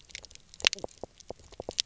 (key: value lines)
label: biophony, knock croak
recorder: SoundTrap 300